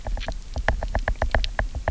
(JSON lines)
{"label": "biophony, knock", "recorder": "SoundTrap 300"}